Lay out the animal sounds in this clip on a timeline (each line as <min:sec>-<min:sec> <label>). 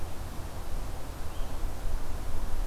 0:00.0-0:02.7 Blue-headed Vireo (Vireo solitarius)